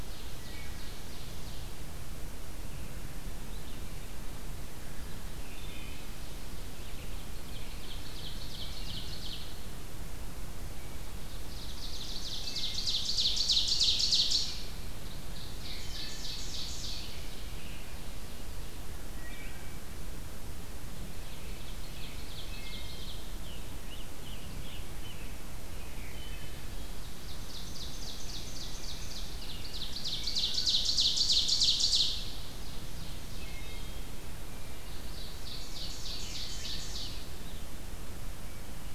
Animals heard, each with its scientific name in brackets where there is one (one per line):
Wood Thrush (Hylocichla mustelina)
American Robin (Turdus migratorius)
Ovenbird (Seiurus aurocapilla)
Scarlet Tanager (Piranga olivacea)